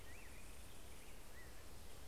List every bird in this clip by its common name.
Black-headed Grosbeak